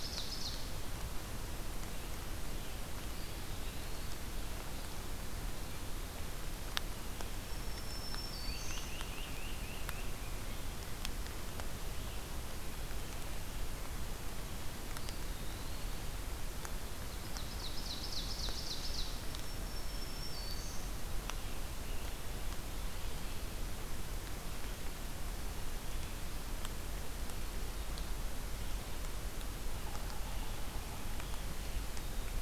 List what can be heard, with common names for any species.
Ovenbird, Eastern Wood-Pewee, Black-throated Green Warbler, Great Crested Flycatcher